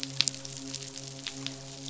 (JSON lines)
{"label": "biophony, midshipman", "recorder": "SoundTrap 500"}